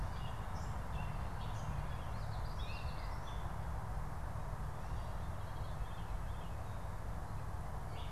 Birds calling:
Gray Catbird (Dumetella carolinensis)

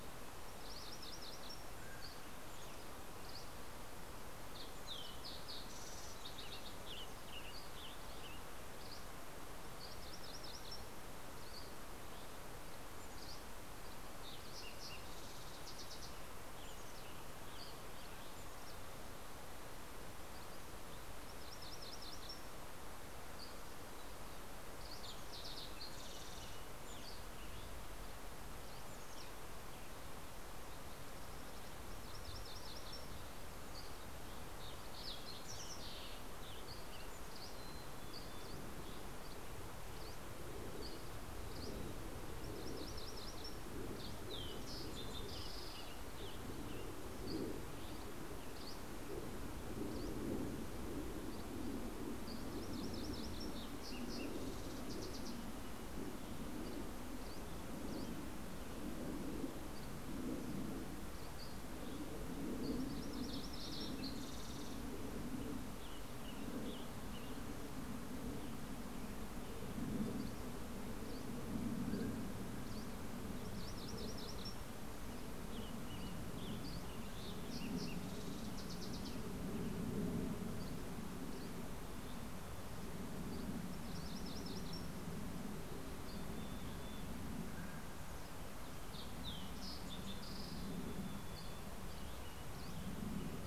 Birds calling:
Mountain Quail (Oreortyx pictus), Fox Sparrow (Passerella iliaca), Green-tailed Towhee (Pipilo chlorurus), Mountain Chickadee (Poecile gambeli), MacGillivray's Warbler (Geothlypis tolmiei), Spotted Towhee (Pipilo maculatus), Western Tanager (Piranga ludoviciana), Dusky Flycatcher (Empidonax oberholseri)

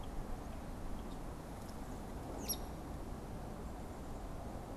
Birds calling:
Hairy Woodpecker (Dryobates villosus)

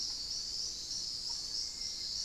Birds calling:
unidentified bird, Fasciated Antshrike (Cymbilaimus lineatus), Hauxwell's Thrush (Turdus hauxwelli)

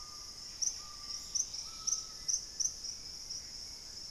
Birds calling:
Gray Antbird (Cercomacra cinerascens), Screaming Piha (Lipaugus vociferans), Dusky-capped Greenlet (Pachysylvia hypoxantha), Black-faced Antthrush (Formicarius analis), Bright-rumped Attila (Attila spadiceus)

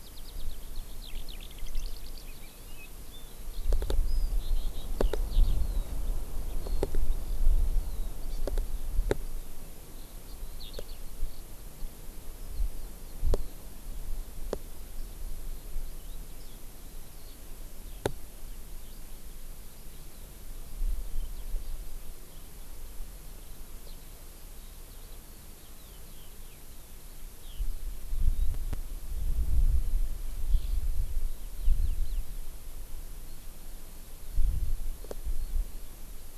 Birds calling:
Eurasian Skylark (Alauda arvensis), Hawaii Amakihi (Chlorodrepanis virens)

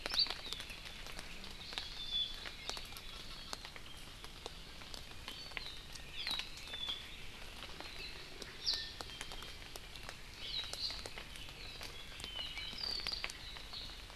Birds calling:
Apapane (Himatione sanguinea), Iiwi (Drepanis coccinea), Hawaii Amakihi (Chlorodrepanis virens)

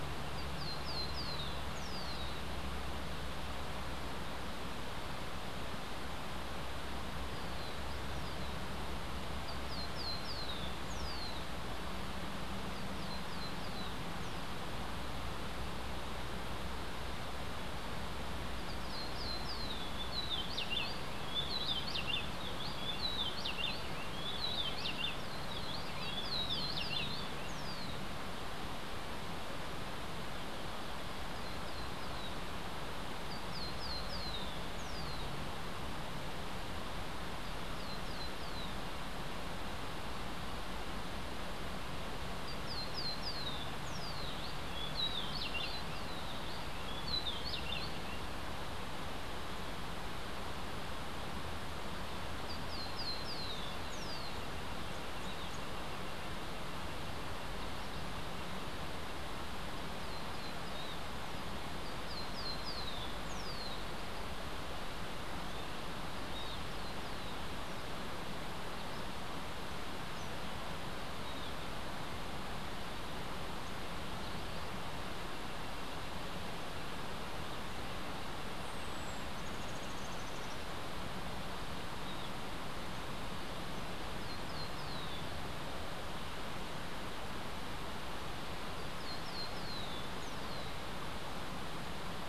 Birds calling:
Rufous-breasted Wren (Pheugopedius rutilus), Cabanis's Ground-Sparrow (Melozone cabanisi)

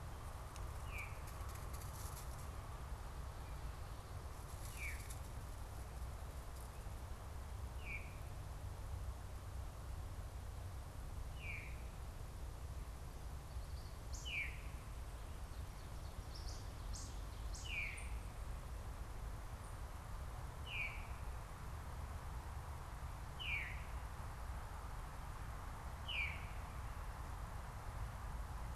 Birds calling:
Veery (Catharus fuscescens), Ovenbird (Seiurus aurocapilla)

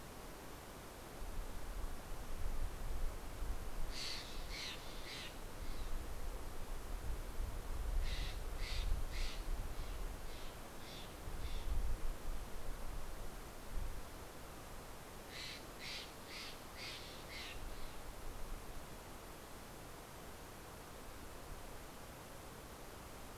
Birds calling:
Steller's Jay (Cyanocitta stelleri)

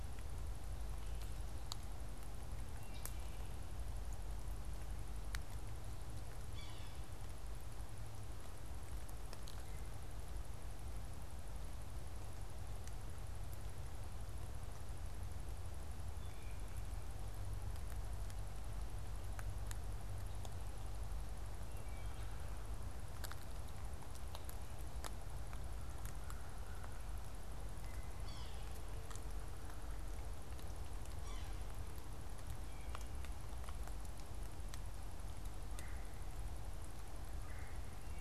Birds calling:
Wood Thrush (Hylocichla mustelina), Yellow-bellied Sapsucker (Sphyrapicus varius), Red-bellied Woodpecker (Melanerpes carolinus)

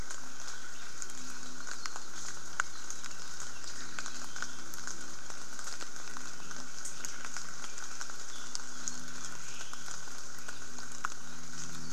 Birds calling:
Omao (Myadestes obscurus)

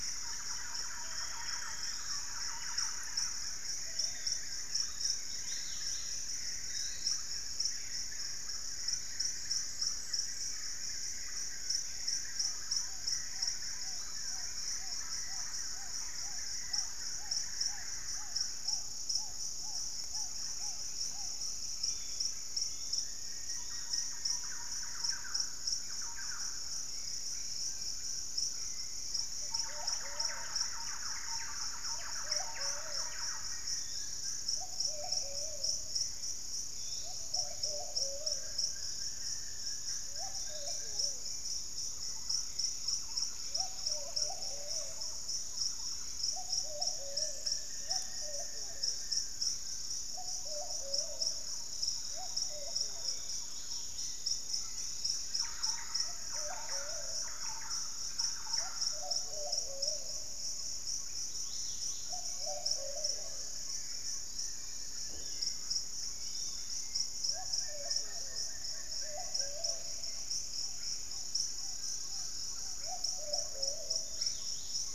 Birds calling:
Wing-barred Piprites (Piprites chloris), Plumbeous Pigeon (Patagioenas plumbea), Dusky-capped Greenlet (Pachysylvia hypoxantha), Chestnut-winged Foliage-gleaner (Dendroma erythroptera), White-lored Tyrannulet (Ornithion inerme), Hauxwell's Thrush (Turdus hauxwelli), Undulated Tinamou (Crypturellus undulatus), Yellow-margined Flycatcher (Tolmomyias assimilis), Russet-backed Oropendola (Psarocolius angustifrons), Forest Elaenia (Myiopagis gaimardii), Golden-crowned Spadebill (Platyrinchus coronatus), Pygmy Antwren (Myrmotherula brachyura), Thrush-like Wren (Campylorhynchus turdinus), Black-fronted Nunbird (Monasa nigrifrons), Collared Trogon (Trogon collaris), Black-tailed Trogon (Trogon melanurus), unidentified bird

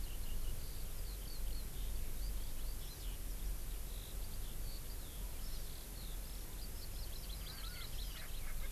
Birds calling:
Erckel's Francolin (Pternistis erckelii), Hawaii Amakihi (Chlorodrepanis virens), Eurasian Skylark (Alauda arvensis)

